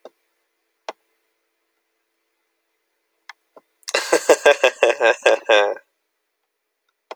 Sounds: Laughter